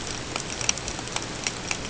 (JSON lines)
{"label": "ambient", "recorder": "HydroMoth"}